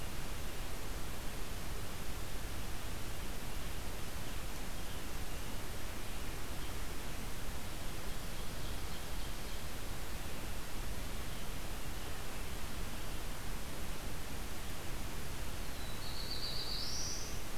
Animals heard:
Black-throated Blue Warbler (Setophaga caerulescens), Red-eyed Vireo (Vireo olivaceus), Ovenbird (Seiurus aurocapilla)

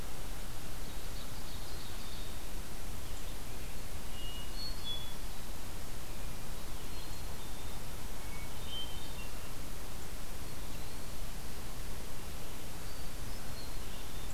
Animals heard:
Ovenbird (Seiurus aurocapilla), Black-capped Chickadee (Poecile atricapillus), Eastern Wood-Pewee (Contopus virens), Hermit Thrush (Catharus guttatus)

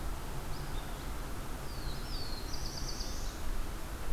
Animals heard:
Black-throated Blue Warbler (Setophaga caerulescens), Red-eyed Vireo (Vireo olivaceus)

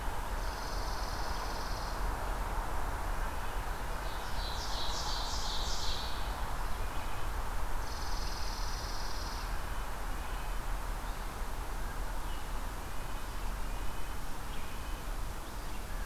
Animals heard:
Red-breasted Nuthatch (Sitta canadensis), Chipping Sparrow (Spizella passerina), Ovenbird (Seiurus aurocapilla)

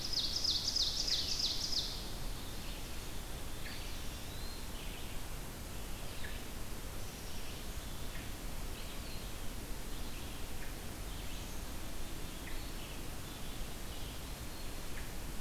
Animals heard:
Eastern Wood-Pewee (Contopus virens), Ovenbird (Seiurus aurocapilla), Black-capped Chickadee (Poecile atricapillus), Red-eyed Vireo (Vireo olivaceus)

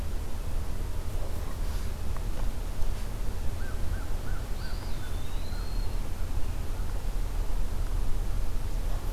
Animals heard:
Eastern Wood-Pewee (Contopus virens), American Crow (Corvus brachyrhynchos)

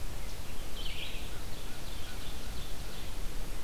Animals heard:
Ovenbird (Seiurus aurocapilla), American Crow (Corvus brachyrhynchos), Red-eyed Vireo (Vireo olivaceus)

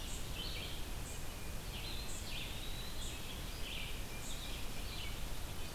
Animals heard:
Red-eyed Vireo (Vireo olivaceus), unknown mammal, Eastern Wood-Pewee (Contopus virens)

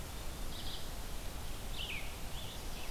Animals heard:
Red-eyed Vireo (Vireo olivaceus), Rose-breasted Grosbeak (Pheucticus ludovicianus)

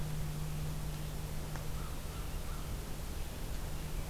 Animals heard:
American Crow (Corvus brachyrhynchos), Red-eyed Vireo (Vireo olivaceus)

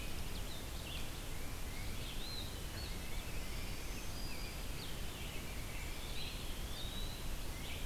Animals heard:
Tufted Titmouse (Baeolophus bicolor), Blue-headed Vireo (Vireo solitarius), Black-throated Green Warbler (Setophaga virens), Eastern Wood-Pewee (Contopus virens), Red-eyed Vireo (Vireo olivaceus)

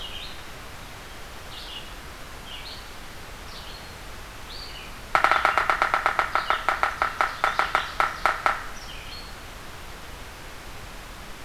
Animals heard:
Yellow-bellied Sapsucker (Sphyrapicus varius), Red-eyed Vireo (Vireo olivaceus)

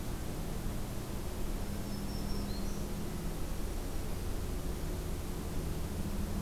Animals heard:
Black-throated Green Warbler (Setophaga virens)

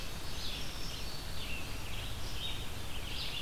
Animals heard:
Red-eyed Vireo (Vireo olivaceus), Indigo Bunting (Passerina cyanea)

